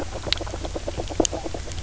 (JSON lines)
{"label": "biophony, knock croak", "recorder": "SoundTrap 300"}